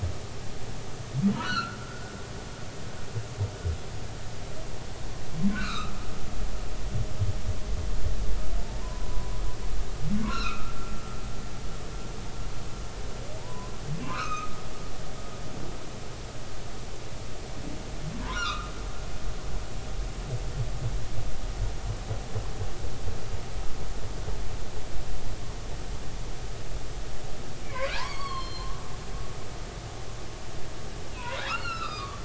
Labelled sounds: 1.3	1.8	humpback whale, 1.2 to 4.6 kHz
5.5	5.9	humpback whale, 1.0 to 4.3 kHz
8.6	9.4	humpback whale, 0.86 to 1.1 kHz
10.2	10.7	humpback whale, 0.93 to 4.2 kHz
13.4	14.6	humpback whale, 0.86 to 6.4 kHz
18.2	18.7	humpback whale, 0.90 to 4.3 kHz
27.6	29.5	humpback whale, 0.86 to 4.7 kHz
31.2	32.2	humpback whale, 0.90 to 4.5 kHz

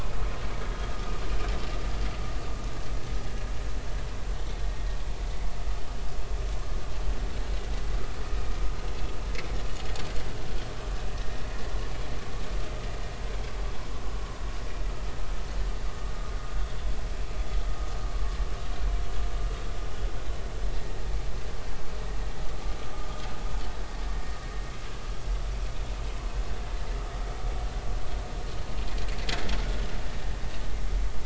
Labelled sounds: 15.9	16.1	vessel noise, 1.1 to 1.2 kHz

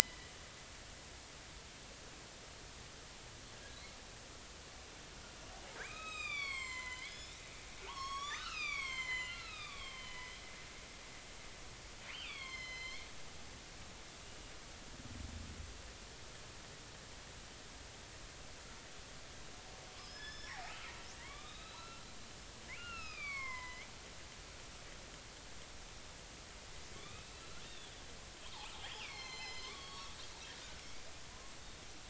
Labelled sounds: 0.0	0.3	killer whale, northern resident, 1.9 to 2.1 kHz
5.8	10.4	killer whale, northern resident, 0.83 to 8.0 kHz
12.1	13.1	killer whale, northern resident, 0.99 to 6.4 kHz
20.0	23.9	killer whale, northern resident, 0.90 to 5.7 kHz
26.9	27.3	killer whale, northern resident, 1.1 to 3.8 kHz
28.9	30.1	killer whale, northern resident, 0.99 to 7.3 kHz

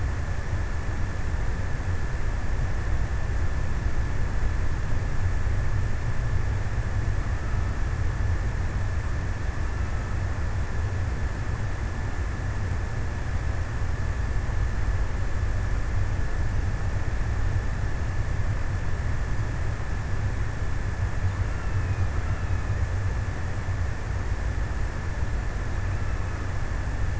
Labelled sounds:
20.9	23.4	killer whale, offshore, 1.0 to 3.0 kHz
25.5	26.8	killer whale, offshore, 1.0 to 3.0 kHz

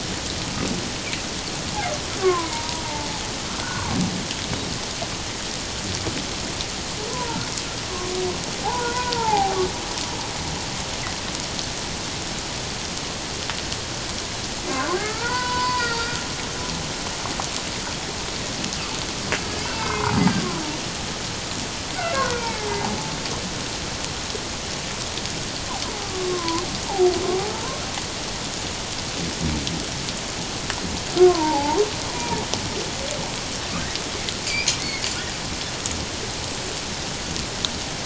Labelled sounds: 2.2	3.1	humpback whale, 0.84 to 2.3 kHz
3.6	3.9	humpback whale, 1.3 to 1.6 kHz
7.1	7.4	humpback whale, 0.84 to 1.1 kHz
8.6	9.6	humpback whale, 0.78 to 1.6 kHz
14.7	16.2	humpback whale, 0.88 to 4.9 kHz
19.3	20.2	humpback whale, 0.81 to 2.8 kHz
22.1	22.9	humpback whale, 0.78 to 2.4 kHz
26.0	26.6	humpback whale, 0.94 to 1.2 kHz
27.5	27.8	humpback whale, 0.88 to 1.1 kHz
31.2	31.8	humpback whale, 0.78 to 1.2 kHz
34.4	35.1	humpback whale, 2.0 to 2.6 kHz

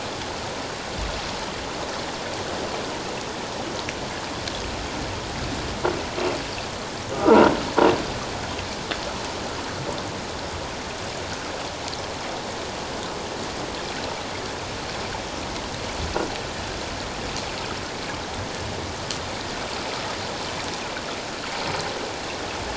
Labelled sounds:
7.1	7.5	croaking sound likely from a nearby submerged object, 1.2 to 1.5 kHz

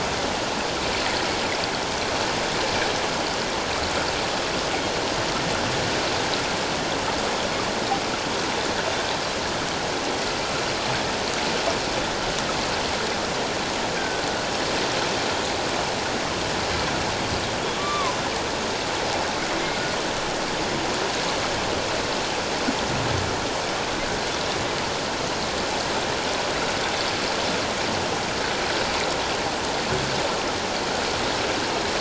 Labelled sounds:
14.0	14.2	killer whale, 1.5 to 1.6 kHz
17.8	18.1	killer whale, 0.94 to 2.4 kHz

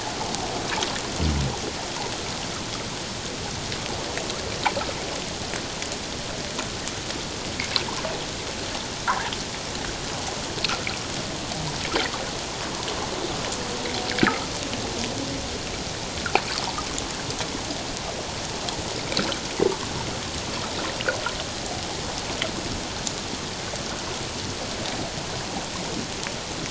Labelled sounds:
14.2	14.6	water noise, 1.1 to 1.8 kHz

